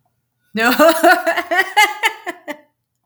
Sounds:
Laughter